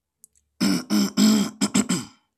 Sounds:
Throat clearing